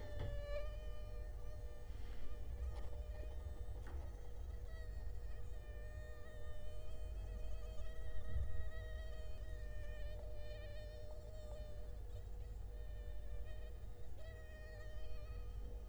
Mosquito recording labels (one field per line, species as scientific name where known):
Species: Culex quinquefasciatus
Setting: cup